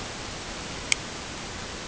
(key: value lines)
label: ambient
recorder: HydroMoth